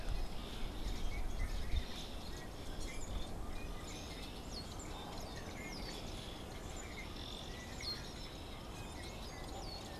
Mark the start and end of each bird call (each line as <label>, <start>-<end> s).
unidentified bird, 0.0-10.0 s